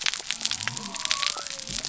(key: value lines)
label: biophony
recorder: SoundTrap 300